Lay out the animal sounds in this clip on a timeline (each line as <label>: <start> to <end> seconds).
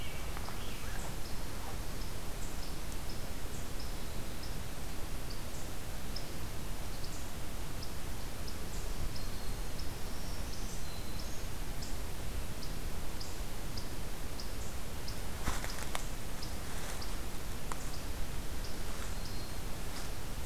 American Robin (Turdus migratorius): 0.0 to 1.1 seconds
Black-throated Green Warbler (Setophaga virens): 8.8 to 11.5 seconds
Black-throated Green Warbler (Setophaga virens): 18.9 to 19.7 seconds